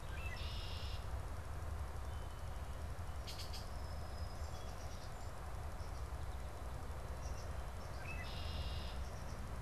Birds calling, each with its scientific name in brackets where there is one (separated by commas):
Song Sparrow (Melospiza melodia), Red-winged Blackbird (Agelaius phoeniceus)